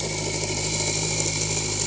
{"label": "anthrophony, boat engine", "recorder": "HydroMoth"}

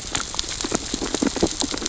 {"label": "biophony, sea urchins (Echinidae)", "recorder": "SoundTrap 600 or HydroMoth"}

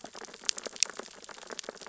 {"label": "biophony, sea urchins (Echinidae)", "recorder": "SoundTrap 600 or HydroMoth"}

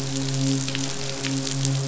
{"label": "biophony, midshipman", "recorder": "SoundTrap 500"}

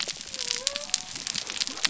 {"label": "biophony", "recorder": "SoundTrap 300"}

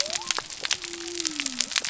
{"label": "biophony", "recorder": "SoundTrap 300"}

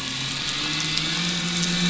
{"label": "anthrophony, boat engine", "recorder": "SoundTrap 500"}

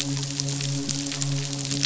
{"label": "biophony, midshipman", "recorder": "SoundTrap 500"}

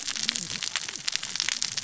{"label": "biophony, cascading saw", "recorder": "SoundTrap 600 or HydroMoth"}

